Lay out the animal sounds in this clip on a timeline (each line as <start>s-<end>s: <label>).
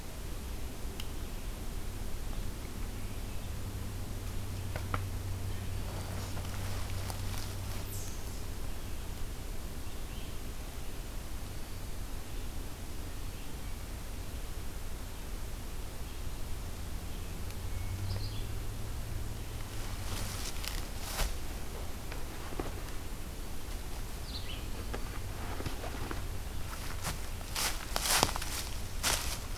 18.0s-18.6s: Red-eyed Vireo (Vireo olivaceus)
24.1s-24.7s: Red-eyed Vireo (Vireo olivaceus)